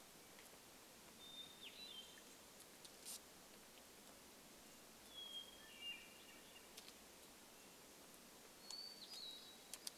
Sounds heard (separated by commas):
Hermit Thrush song